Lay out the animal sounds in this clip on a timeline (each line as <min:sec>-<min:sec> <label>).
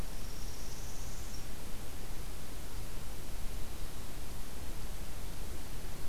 0:00.0-0:01.5 Northern Parula (Setophaga americana)